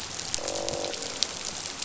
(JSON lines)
{"label": "biophony, croak", "recorder": "SoundTrap 500"}